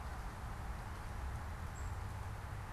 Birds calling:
unidentified bird

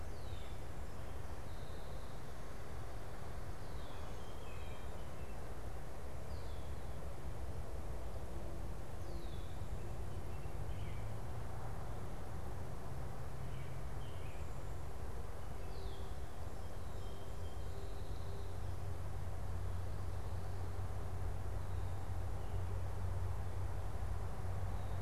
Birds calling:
Song Sparrow (Melospiza melodia), American Robin (Turdus migratorius), Red-winged Blackbird (Agelaius phoeniceus)

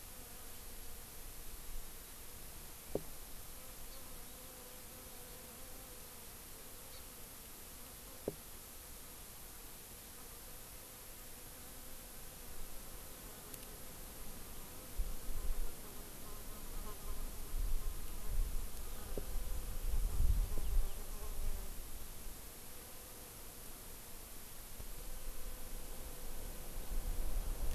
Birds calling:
Hawaii Amakihi (Chlorodrepanis virens)

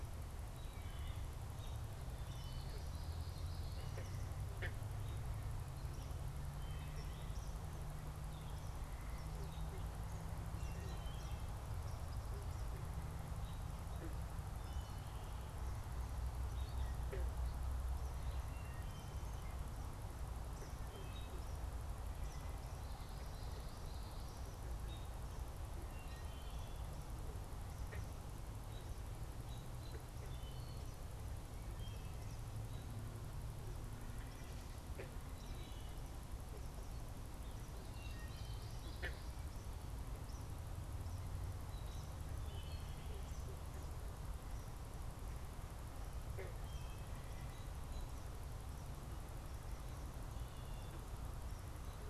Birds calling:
Eastern Kingbird (Tyrannus tyrannus), American Robin (Turdus migratorius), Gray Catbird (Dumetella carolinensis), Common Yellowthroat (Geothlypis trichas), Wood Thrush (Hylocichla mustelina)

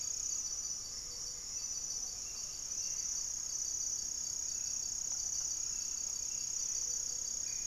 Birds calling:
Great Antshrike (Taraba major), unidentified bird, Gray-fronted Dove (Leptotila rufaxilla), Hauxwell's Thrush (Turdus hauxwelli)

